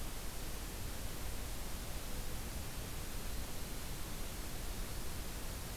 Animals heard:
forest ambience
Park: Acadia National Park